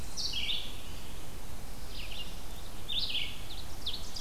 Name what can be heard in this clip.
Red-eyed Vireo, Ovenbird